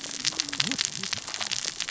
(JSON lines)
{"label": "biophony, cascading saw", "recorder": "SoundTrap 600 or HydroMoth"}